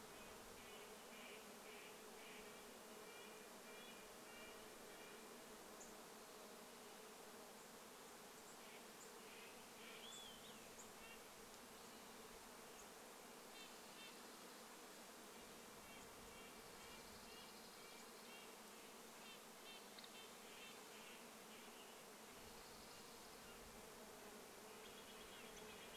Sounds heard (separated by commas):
Olive-sided Flycatcher song, Dark-eyed Junco song, insect buzz, unidentified bird chip note, Red-breasted Nuthatch song, Steller's Jay call